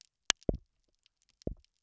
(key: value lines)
label: biophony, double pulse
recorder: SoundTrap 300